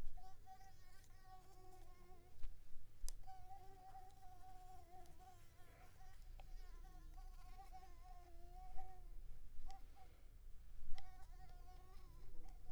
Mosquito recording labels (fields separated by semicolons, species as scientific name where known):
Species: Mansonia africanus; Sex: female; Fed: unfed; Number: one; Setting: cup